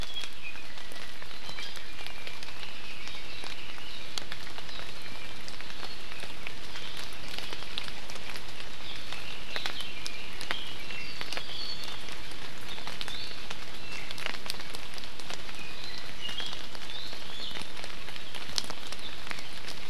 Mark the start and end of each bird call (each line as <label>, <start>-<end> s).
Apapane (Himatione sanguinea), 0.0-1.1 s
Red-billed Leiothrix (Leiothrix lutea), 2.4-4.3 s
Apapane (Himatione sanguinea), 9.8-12.1 s
Iiwi (Drepanis coccinea), 13.0-13.4 s